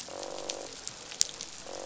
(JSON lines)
{"label": "biophony, croak", "recorder": "SoundTrap 500"}